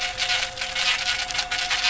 {"label": "anthrophony, boat engine", "recorder": "SoundTrap 500"}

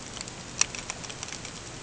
{"label": "ambient", "recorder": "HydroMoth"}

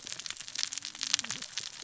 {"label": "biophony, cascading saw", "recorder": "SoundTrap 600 or HydroMoth"}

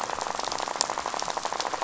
{"label": "biophony, rattle", "recorder": "SoundTrap 500"}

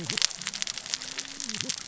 {"label": "biophony, cascading saw", "recorder": "SoundTrap 600 or HydroMoth"}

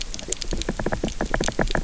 {"label": "biophony, knock", "recorder": "SoundTrap 300"}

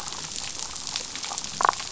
{"label": "biophony, damselfish", "recorder": "SoundTrap 500"}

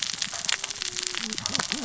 {"label": "biophony, cascading saw", "recorder": "SoundTrap 600 or HydroMoth"}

